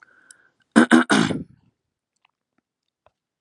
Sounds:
Throat clearing